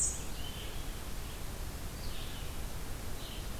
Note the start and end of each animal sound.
[0.00, 3.59] Red-eyed Vireo (Vireo olivaceus)

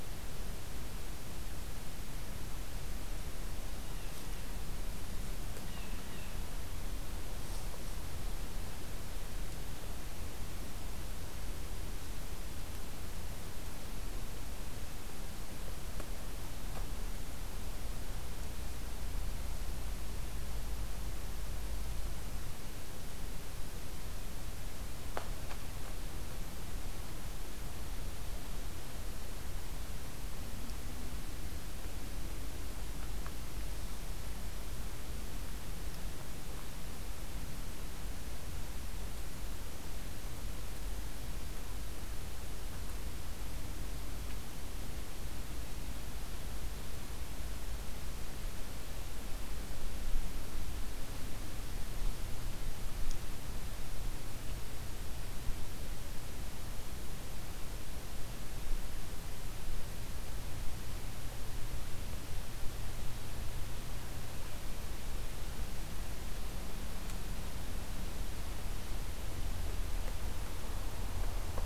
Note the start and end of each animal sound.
[3.79, 4.32] Blue Jay (Cyanocitta cristata)
[5.52, 6.34] Blue Jay (Cyanocitta cristata)

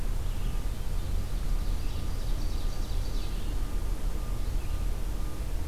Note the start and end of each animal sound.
[0.11, 3.58] Ovenbird (Seiurus aurocapilla)
[3.67, 5.68] Red-eyed Vireo (Vireo olivaceus)

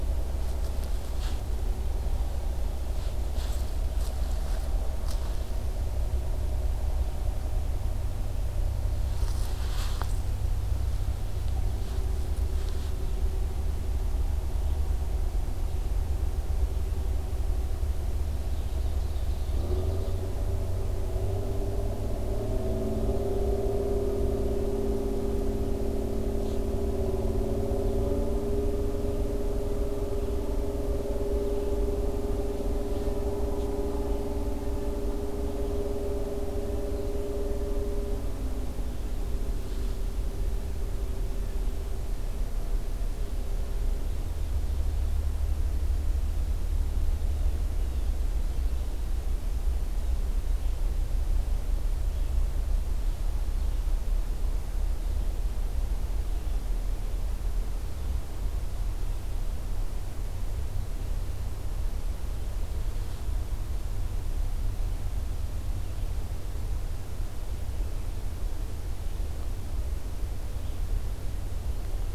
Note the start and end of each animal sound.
[17.94, 20.45] Ovenbird (Seiurus aurocapilla)
[31.25, 33.18] Red-eyed Vireo (Vireo olivaceus)

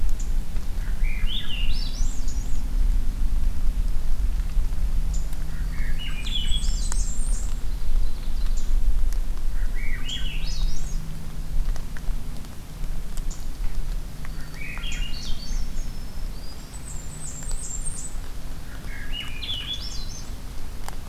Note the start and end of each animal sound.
[0.10, 0.32] unidentified call
[0.75, 2.56] Swainson's Thrush (Catharus ustulatus)
[5.01, 5.26] unidentified call
[5.37, 7.10] Swainson's Thrush (Catharus ustulatus)
[6.13, 7.57] Blackburnian Warbler (Setophaga fusca)
[7.63, 8.72] Ovenbird (Seiurus aurocapilla)
[8.47, 8.80] unidentified call
[9.49, 11.03] Swainson's Thrush (Catharus ustulatus)
[9.94, 10.25] unidentified call
[13.21, 13.51] unidentified call
[14.25, 14.80] Black-throated Green Warbler (Setophaga virens)
[14.32, 15.92] Swainson's Thrush (Catharus ustulatus)
[14.83, 15.38] unidentified call
[15.52, 16.84] Black-throated Green Warbler (Setophaga virens)
[16.55, 18.21] Blackburnian Warbler (Setophaga fusca)
[18.63, 20.38] Swainson's Thrush (Catharus ustulatus)

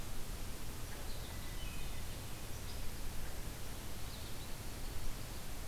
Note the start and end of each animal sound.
[0.93, 1.61] American Goldfinch (Spinus tristis)
[1.25, 2.52] Hermit Thrush (Catharus guttatus)
[3.98, 4.38] American Goldfinch (Spinus tristis)

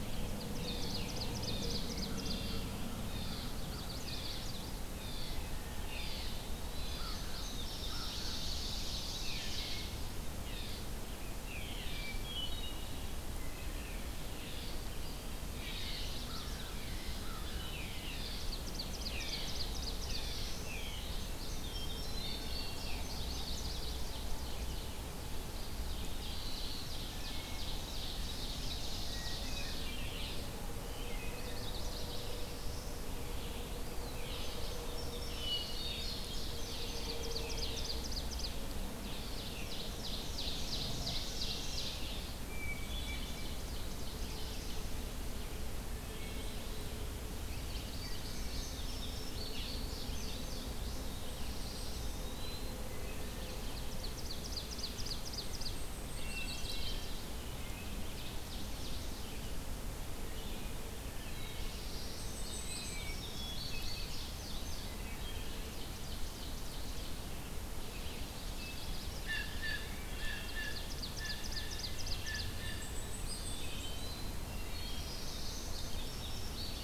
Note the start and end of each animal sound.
[0.06, 2.65] Ovenbird (Seiurus aurocapilla)
[0.41, 39.84] Red-eyed Vireo (Vireo olivaceus)
[3.47, 4.86] Chestnut-sided Warbler (Setophaga pensylvanica)
[5.61, 6.34] Wood Thrush (Hylocichla mustelina)
[6.18, 7.13] Eastern Wood-Pewee (Contopus virens)
[6.75, 9.36] Indigo Bunting (Passerina cyanea)
[6.78, 10.12] Ovenbird (Seiurus aurocapilla)
[6.85, 9.69] American Crow (Corvus brachyrhynchos)
[11.87, 13.04] Hermit Thrush (Catharus guttatus)
[13.35, 13.97] Wood Thrush (Hylocichla mustelina)
[15.44, 16.82] Chestnut-sided Warbler (Setophaga pensylvanica)
[16.23, 17.68] American Crow (Corvus brachyrhynchos)
[18.09, 20.45] Ovenbird (Seiurus aurocapilla)
[19.38, 20.90] Black-throated Blue Warbler (Setophaga caerulescens)
[20.79, 23.73] Indigo Bunting (Passerina cyanea)
[21.59, 22.76] Hermit Thrush (Catharus guttatus)
[22.63, 24.88] Ovenbird (Seiurus aurocapilla)
[22.92, 24.20] Chestnut-sided Warbler (Setophaga pensylvanica)
[25.55, 29.84] Ovenbird (Seiurus aurocapilla)
[27.11, 27.67] Wood Thrush (Hylocichla mustelina)
[29.05, 30.17] Hermit Thrush (Catharus guttatus)
[30.85, 31.57] Wood Thrush (Hylocichla mustelina)
[31.11, 32.29] Chestnut-sided Warbler (Setophaga pensylvanica)
[31.55, 33.07] Black-throated Blue Warbler (Setophaga caerulescens)
[33.66, 34.34] Eastern Wood-Pewee (Contopus virens)
[34.23, 37.14] Indigo Bunting (Passerina cyanea)
[35.40, 36.74] Hermit Thrush (Catharus guttatus)
[36.43, 38.74] Ovenbird (Seiurus aurocapilla)
[39.03, 42.43] Ovenbird (Seiurus aurocapilla)
[41.03, 41.94] Wood Thrush (Hylocichla mustelina)
[42.41, 43.70] Hermit Thrush (Catharus guttatus)
[42.71, 44.84] Ovenbird (Seiurus aurocapilla)
[43.82, 44.96] Black-throated Blue Warbler (Setophaga caerulescens)
[46.01, 46.78] Wood Thrush (Hylocichla mustelina)
[47.30, 48.22] Chestnut-sided Warbler (Setophaga pensylvanica)
[47.78, 50.99] Indigo Bunting (Passerina cyanea)
[49.46, 49.89] Red-eyed Vireo (Vireo olivaceus)
[50.76, 52.44] Black-throated Blue Warbler (Setophaga caerulescens)
[50.81, 52.42] Blackpoll Warbler (Setophaga striata)
[51.45, 52.85] Eastern Wood-Pewee (Contopus virens)
[52.84, 53.55] Wood Thrush (Hylocichla mustelina)
[53.28, 55.91] Ovenbird (Seiurus aurocapilla)
[54.98, 56.87] Blackpoll Warbler (Setophaga striata)
[55.86, 57.33] Chestnut-sided Warbler (Setophaga pensylvanica)
[56.11, 57.33] Hermit Thrush (Catharus guttatus)
[57.43, 59.18] Ovenbird (Seiurus aurocapilla)
[57.55, 57.98] Wood Thrush (Hylocichla mustelina)
[59.09, 76.83] Red-eyed Vireo (Vireo olivaceus)
[60.16, 61.55] Wood Thrush (Hylocichla mustelina)
[61.15, 62.57] Black-throated Blue Warbler (Setophaga caerulescens)
[61.77, 63.26] Eastern Wood-Pewee (Contopus virens)
[61.78, 63.09] Blackpoll Warbler (Setophaga striata)
[61.98, 64.94] Indigo Bunting (Passerina cyanea)
[62.47, 63.08] Wood Thrush (Hylocichla mustelina)
[63.33, 64.02] Hermit Thrush (Catharus guttatus)
[64.97, 65.51] Wood Thrush (Hylocichla mustelina)
[64.99, 67.37] Ovenbird (Seiurus aurocapilla)
[68.02, 69.31] Chestnut-sided Warbler (Setophaga pensylvanica)
[68.54, 69.04] Wood Thrush (Hylocichla mustelina)
[69.16, 72.97] Blue Jay (Cyanocitta cristata)
[70.18, 72.66] Ovenbird (Seiurus aurocapilla)
[72.49, 74.03] Blackpoll Warbler (Setophaga striata)
[72.98, 74.45] Eastern Wood-Pewee (Contopus virens)
[73.44, 74.13] Wood Thrush (Hylocichla mustelina)
[74.42, 75.14] Wood Thrush (Hylocichla mustelina)
[74.63, 75.72] Black-throated Blue Warbler (Setophaga caerulescens)
[75.69, 76.83] Indigo Bunting (Passerina cyanea)

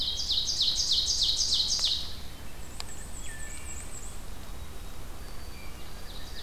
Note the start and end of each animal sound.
[0.00, 2.23] Ovenbird (Seiurus aurocapilla)
[2.38, 4.24] Black-and-white Warbler (Mniotilta varia)
[2.65, 3.87] Wood Thrush (Hylocichla mustelina)
[4.14, 6.41] White-throated Sparrow (Zonotrichia albicollis)
[5.71, 6.43] Ovenbird (Seiurus aurocapilla)

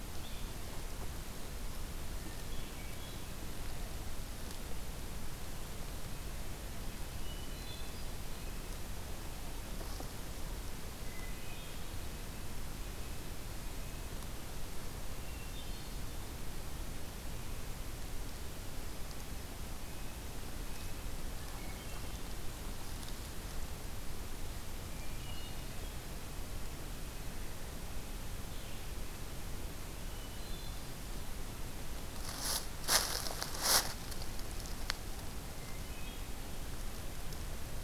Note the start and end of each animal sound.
[0.00, 0.73] Red-eyed Vireo (Vireo olivaceus)
[2.00, 3.39] Hermit Thrush (Catharus guttatus)
[6.82, 8.45] Hermit Thrush (Catharus guttatus)
[10.82, 12.08] Hermit Thrush (Catharus guttatus)
[15.09, 16.43] Hermit Thrush (Catharus guttatus)
[19.78, 20.91] Red-breasted Nuthatch (Sitta canadensis)
[21.06, 22.55] Hermit Thrush (Catharus guttatus)
[24.84, 26.29] Hermit Thrush (Catharus guttatus)
[29.99, 31.17] Hermit Thrush (Catharus guttatus)
[35.41, 36.38] Hermit Thrush (Catharus guttatus)

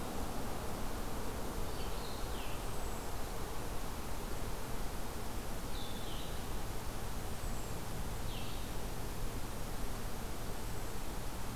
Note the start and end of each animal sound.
[1.59, 8.72] Blue-headed Vireo (Vireo solitarius)

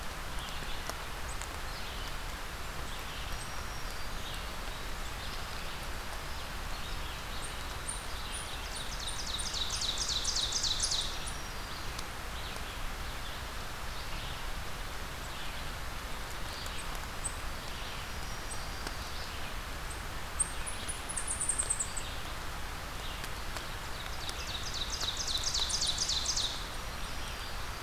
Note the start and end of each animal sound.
[0.00, 22.18] Red-eyed Vireo (Vireo olivaceus)
[3.02, 4.39] Black-throated Green Warbler (Setophaga virens)
[7.34, 11.02] unidentified call
[8.15, 11.30] Ovenbird (Seiurus aurocapilla)
[10.95, 12.06] Black-throated Green Warbler (Setophaga virens)
[16.67, 18.69] unidentified call
[17.64, 19.26] Black-throated Green Warbler (Setophaga virens)
[19.78, 22.17] unidentified call
[22.77, 27.82] Red-eyed Vireo (Vireo olivaceus)
[23.73, 26.75] Ovenbird (Seiurus aurocapilla)
[25.10, 26.59] unidentified call
[26.52, 27.82] Black-throated Green Warbler (Setophaga virens)
[26.87, 27.82] Winter Wren (Troglodytes hiemalis)

